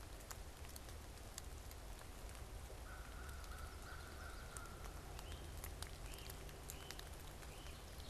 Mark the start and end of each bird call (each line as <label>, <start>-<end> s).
American Crow (Corvus brachyrhynchos), 2.7-5.3 s
Great Crested Flycatcher (Myiarchus crinitus), 5.0-8.1 s